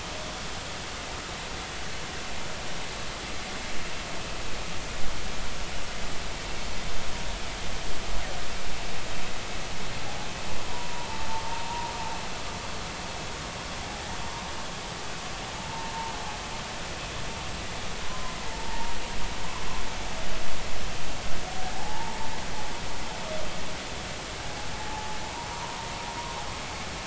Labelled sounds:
10.6	11.9	humpback whale, 0.83 to 1.0 kHz
15.6	15.9	humpback whale, 0.83 to 0.96 kHz
18.0	19.0	humpback whale, 0.86 to 1.1 kHz
21.7	22.2	humpback whale, 0.80 to 1.0 kHz
24.9	25.2	humpback whale, 0.80 to 0.93 kHz
25.5	25.9	humpback whale, 0.86 to 1.2 kHz

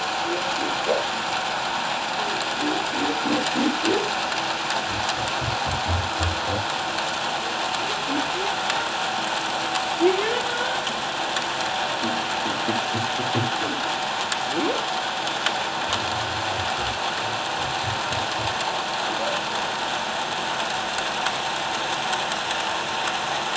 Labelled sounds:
10.5	10.8	humpback whale, 1.4 to 1.6 kHz

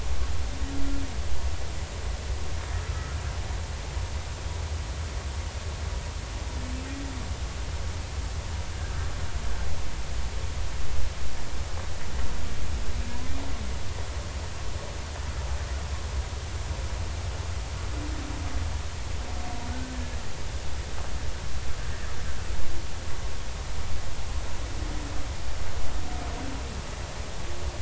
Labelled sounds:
2.9	3.1	humpback whale, 1.2 to 1.4 kHz
19.7	20.0	humpback whale, 1.4 to 1.6 kHz

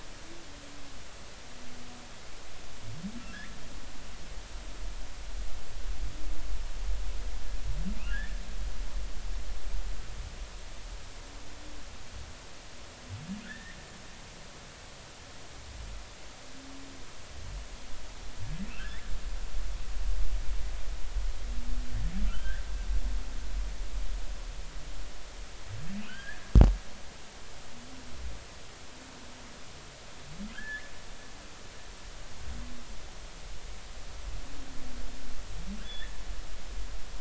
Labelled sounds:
8.1	8.4	humpback whale, 1.5 to 1.9 kHz
13.4	13.8	humpback whale, 1.4 to 2.1 kHz
18.7	19.0	humpback whale, 1.5 to 2.8 kHz
22.2	22.6	humpback whale, 1.3 to 3.2 kHz
26.0	26.5	humpback whale, 1.3 to 3.3 kHz
30.5	30.9	humpback whale, 1.4 to 2.2 kHz
35.8	36.1	humpback whale, 1.4 to 3.7 kHz

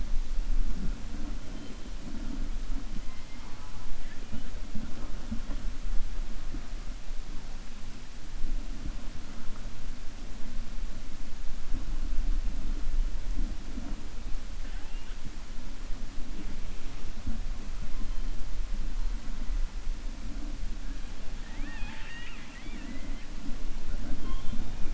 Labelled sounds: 14.6	15.2	killer whale, 0.74 to 3.5 kHz
21.4	23.3	killer whale, 0.84 to 4.4 kHz

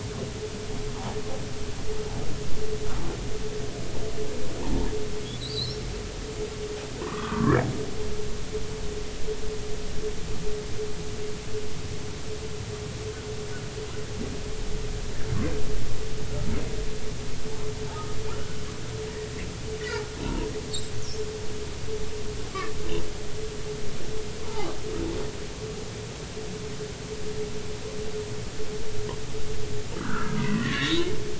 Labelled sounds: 5.4	5.8	humpback whale, 3.6 to 4.4 kHz
7.0	7.6	humpback whale, 0.90 to 1.6 kHz
17.9	18.2	humpback whale, 1.2 to 1.3 kHz
21.0	21.3	humpback whale, 5.2 to 5.8 kHz
24.4	24.7	humpback whale, 0.80 to 1.2 kHz
29.9	31.1	humpback whale, 0.93 to 4.1 kHz

